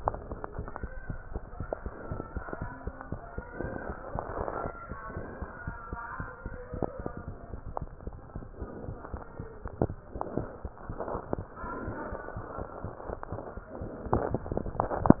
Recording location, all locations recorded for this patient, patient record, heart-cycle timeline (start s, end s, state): mitral valve (MV)
aortic valve (AV)+pulmonary valve (PV)+tricuspid valve (TV)+mitral valve (MV)
#Age: Child
#Sex: Female
#Height: 96.0 cm
#Weight: 15.8 kg
#Pregnancy status: False
#Murmur: Absent
#Murmur locations: nan
#Most audible location: nan
#Systolic murmur timing: nan
#Systolic murmur shape: nan
#Systolic murmur grading: nan
#Systolic murmur pitch: nan
#Systolic murmur quality: nan
#Diastolic murmur timing: nan
#Diastolic murmur shape: nan
#Diastolic murmur grading: nan
#Diastolic murmur pitch: nan
#Diastolic murmur quality: nan
#Outcome: Normal
#Campaign: 2015 screening campaign
0.00	4.62	unannotated
4.62	4.74	S1
4.74	4.88	systole
4.88	4.98	S2
4.98	5.14	diastole
5.14	5.26	S1
5.26	5.38	systole
5.38	5.48	S2
5.48	5.64	diastole
5.64	5.76	S1
5.76	5.92	systole
5.92	6.00	S2
6.00	6.16	diastole
6.16	6.28	S1
6.28	6.42	systole
6.42	6.56	S2
6.56	6.72	diastole
6.72	6.88	S1
6.88	6.98	systole
6.98	7.10	S2
7.10	7.24	diastole
7.24	7.36	S1
7.36	7.52	systole
7.52	7.62	S2
7.62	7.80	diastole
7.80	7.90	S1
7.90	8.02	systole
8.02	8.16	S2
8.16	8.36	diastole
8.36	8.48	S1
8.48	8.60	systole
8.60	8.70	S2
8.70	8.86	diastole
8.86	8.98	S1
8.98	9.10	systole
9.10	9.22	S2
9.22	9.40	diastole
9.40	9.48	S1
9.48	9.54	systole
9.54	15.20	unannotated